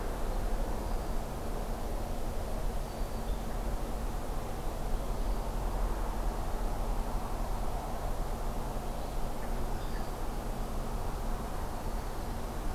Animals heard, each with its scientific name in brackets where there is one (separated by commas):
Red-winged Blackbird (Agelaius phoeniceus), Black-throated Green Warbler (Setophaga virens)